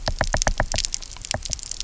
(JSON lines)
{"label": "biophony, knock", "recorder": "SoundTrap 300"}